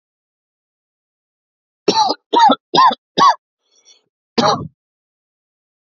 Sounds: Cough